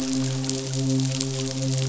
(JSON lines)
{"label": "biophony, midshipman", "recorder": "SoundTrap 500"}